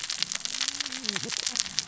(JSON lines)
{"label": "biophony, cascading saw", "recorder": "SoundTrap 600 or HydroMoth"}